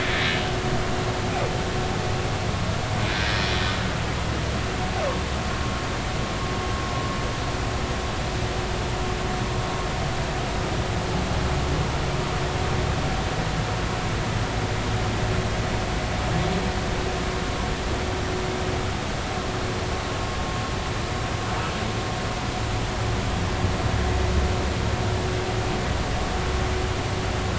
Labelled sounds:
0.3	0.5	humpback whale, 2.8 to 3.1 kHz
3.1	3.4	humpback whale, 1.5 to 1.7 kHz

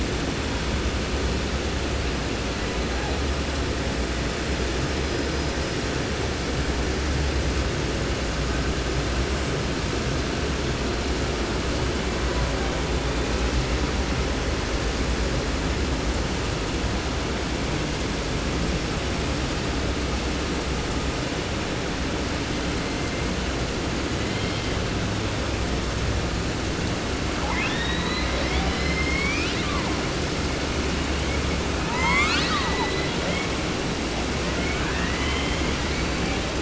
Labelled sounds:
2.5	3.2	killer whale, 0.57 to 2.6 kHz
4.5	5.8	killer whale, 4.5 to 5.6 kHz
11.7	12.9	killer whale, 0.65 to 3.2 kHz
22.3	23.5	killer whale, 1.1 to 4.5 kHz
24.0	24.8	killer whale, 1.4 to 4.6 kHz
27.3	30.0	killer whale, 0.40 to 7.4 kHz
31.8	33.6	killer whale, southern resident, 0.30 to 8.0 kHz
34.4	36.5	killer whale, 0.30 to 5.4 kHz

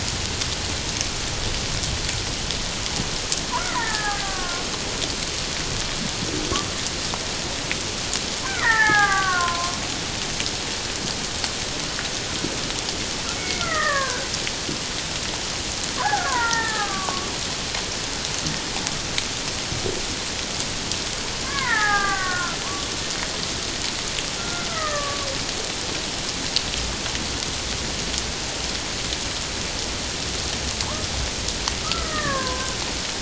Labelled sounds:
3.5	4.6	killer whale, Bigg's (transient), 1.0 to 2.2 kHz
8.4	9.8	killer whale, Bigg's (transient), 0.78 to 2.4 kHz
13.4	14.3	killer whale, Bigg's (transient), 0.94 to 2.3 kHz
16.0	17.3	killer whale, Bigg's (transient), 0.78 to 2.0 kHz
21.4	22.6	killer whale, Bigg's (transient), 0.78 to 2.3 kHz
24.4	25.3	killer whale, Bigg's (transient), 1.1 to 2.0 kHz
31.8	32.8	killer whale, Bigg's (transient), 0.97 to 2.0 kHz

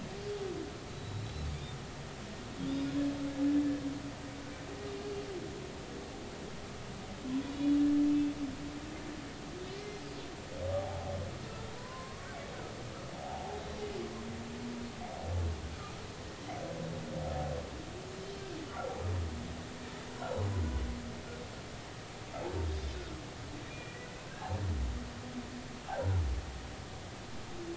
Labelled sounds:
0.9	1.5	humpback whale, 3.8 to 4.2 kHz
7.5	8.3	humpback whale, 2.6 to 3.0 kHz
9.7	11.1	humpback whale, 0.80 to 2.1 kHz
11.5	12.3	humpback whale, 0.93 to 1.4 kHz
13.2	13.6	humpback whale, 0.80 to 0.96 kHz
20.2	20.4	humpback whale, 3.8 to 4.0 kHz
22.7	24.0	humpback whale, 2.3 to 3.8 kHz
24.8	25.1	humpback whale, 1.9 to 2.0 kHz

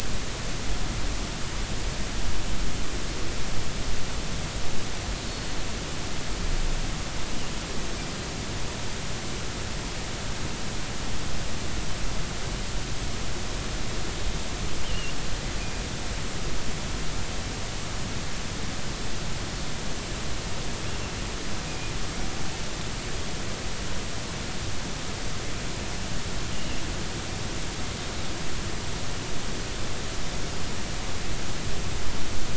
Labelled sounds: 5.3	5.5	killer whale, offshore, 4.3 to 4.4 kHz
14.8	15.1	killer whale, offshore, 2.7 to 3.2 kHz
21.7	21.9	killer whale, offshore, 2.4 to 2.5 kHz
26.5	26.8	killer whale, offshore, 2.7 to 3.0 kHz

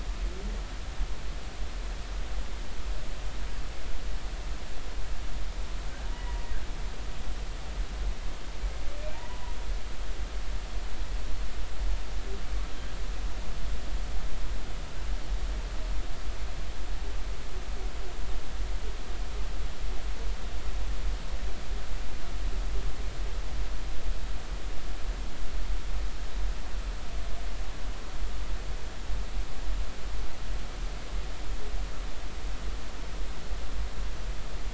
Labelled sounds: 6.1	6.5	humpback whale, 0.90 to 2.0 kHz
9.1	9.5	humpback whale, 0.86 to 1.1 kHz

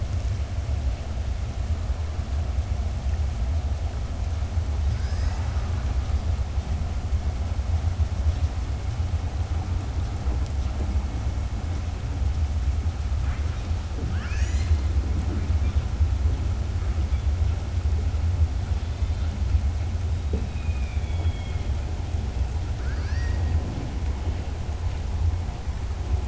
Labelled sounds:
20.4	21.7	killer whale, southern resident, 2.1 to 3.9 kHz

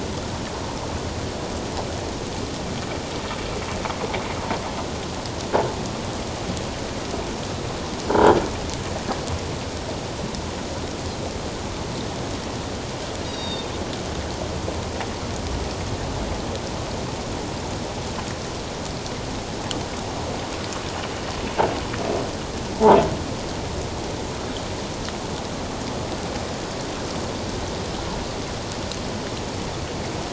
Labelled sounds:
13.2	13.7	Pacific white-sided dolphin, 3.6 to 4.9 kHz
22.7	23.0	croaking sound likely from a nearby submerged object, 0.78 to 1.0 kHz

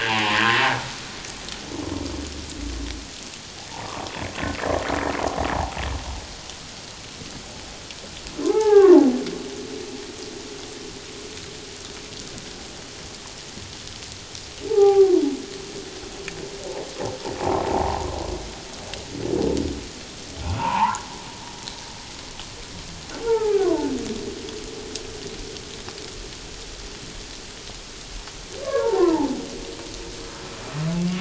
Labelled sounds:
8.5	9.1	humpback whale, 0.78 to 1.8 kHz
14.7	15.2	humpback whale, 0.78 to 1.3 kHz
17.4	18.1	humpback whale, 0.78 to 1.1 kHz
20.6	21.0	humpback whale, 0.78 to 1.2 kHz
23.2	23.9	humpback whale, 0.78 to 1.8 kHz
28.6	29.4	humpback whale, 0.78 to 1.2 kHz

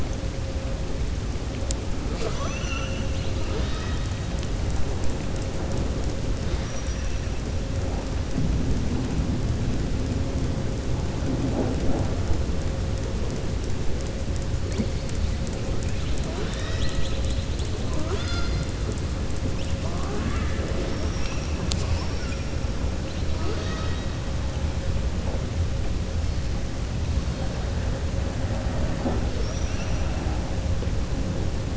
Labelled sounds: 6.5	7.1	killer whale, southern resident, 4.8 to 5.9 kHz
29.3	30.0	killer whale, southern resident, 4.5 to 6.5 kHz

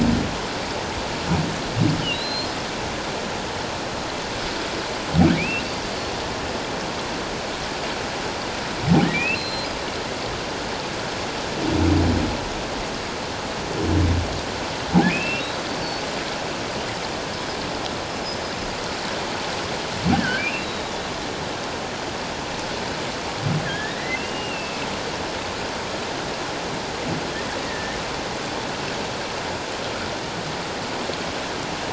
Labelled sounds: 2.1	2.5	humpback whale, 3.8 to 4.3 kHz
5.4	5.6	humpback whale, 2.1 to 2.9 kHz
9.0	9.7	humpback whale, 1.7 to 4.2 kHz
15.1	16.0	humpback whale, 2.3 to 4.7 kHz
20.2	20.9	humpback whale, 1.4 to 4.1 kHz
23.6	24.8	humpback whale, 1.5 to 2.9 kHz
27.7	28.0	humpback whale, 1.7 to 1.9 kHz

